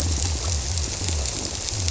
{"label": "biophony", "recorder": "SoundTrap 300"}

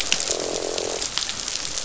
{"label": "biophony, croak", "recorder": "SoundTrap 500"}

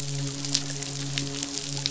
{"label": "biophony, midshipman", "recorder": "SoundTrap 500"}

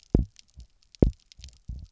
{"label": "biophony, double pulse", "recorder": "SoundTrap 300"}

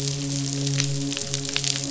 {"label": "biophony, midshipman", "recorder": "SoundTrap 500"}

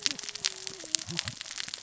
{"label": "biophony, cascading saw", "recorder": "SoundTrap 600 or HydroMoth"}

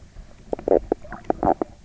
{"label": "biophony, knock croak", "recorder": "SoundTrap 300"}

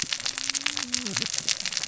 {"label": "biophony, cascading saw", "recorder": "SoundTrap 600 or HydroMoth"}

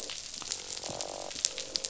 {"label": "biophony, croak", "recorder": "SoundTrap 500"}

